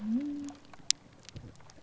{"label": "biophony", "recorder": "SoundTrap 300"}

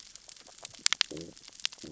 {"label": "biophony, growl", "recorder": "SoundTrap 600 or HydroMoth"}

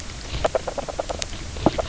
{"label": "biophony, knock croak", "recorder": "SoundTrap 300"}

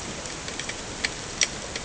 {"label": "ambient", "recorder": "HydroMoth"}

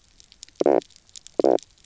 {"label": "biophony, knock croak", "recorder": "SoundTrap 300"}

